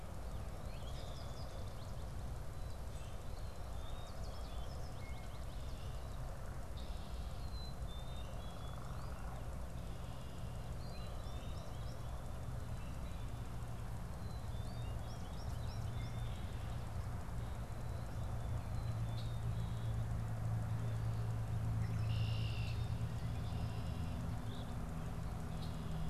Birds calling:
American Goldfinch (Spinus tristis), Red-winged Blackbird (Agelaius phoeniceus), Common Grackle (Quiscalus quiscula), Black-capped Chickadee (Poecile atricapillus), Eastern Phoebe (Sayornis phoebe)

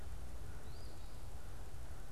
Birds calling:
Eastern Phoebe (Sayornis phoebe), American Crow (Corvus brachyrhynchos)

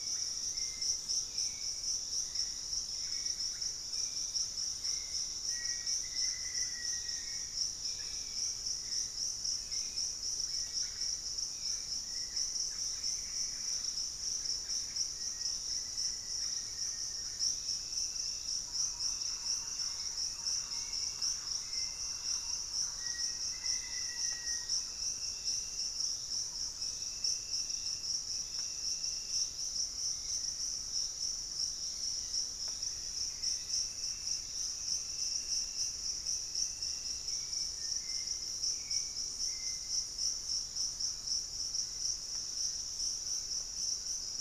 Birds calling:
Hauxwell's Thrush (Turdus hauxwelli), Black-faced Antthrush (Formicarius analis), unidentified bird, Thrush-like Wren (Campylorhynchus turdinus), Pygmy Antwren (Myrmotherula brachyura), Russet-backed Oropendola (Psarocolius angustifrons)

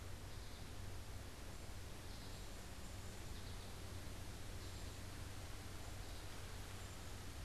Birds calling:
American Goldfinch (Spinus tristis), Cedar Waxwing (Bombycilla cedrorum)

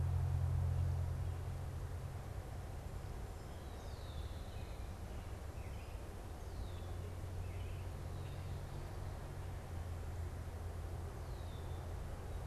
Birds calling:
American Robin (Turdus migratorius), Red-winged Blackbird (Agelaius phoeniceus)

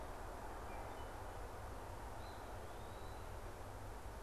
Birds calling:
Eastern Wood-Pewee (Contopus virens), Wood Thrush (Hylocichla mustelina)

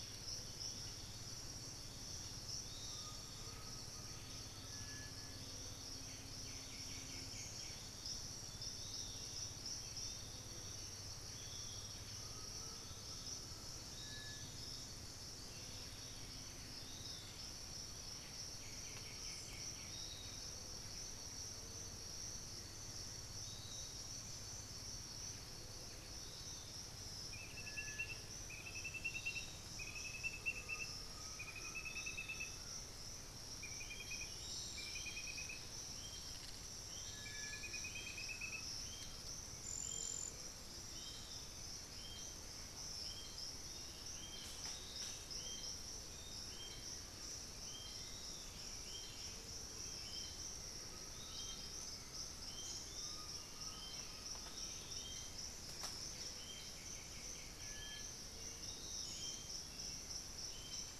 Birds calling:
Bluish-fronted Jacamar (Galbula cyanescens), White-winged Becard (Pachyramphus polychopterus), Piratic Flycatcher (Legatus leucophaius), Thrush-like Wren (Campylorhynchus turdinus), Black-billed Thrush (Turdus ignobilis), unidentified bird, Undulated Tinamou (Crypturellus undulatus), Blue-headed Parrot (Pionus menstruus), Cinereous Tinamou (Crypturellus cinereus)

